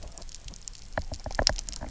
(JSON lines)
{"label": "biophony, knock", "recorder": "SoundTrap 300"}